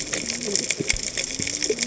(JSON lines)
{"label": "biophony, cascading saw", "recorder": "HydroMoth"}